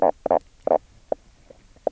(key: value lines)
label: biophony, knock croak
recorder: SoundTrap 300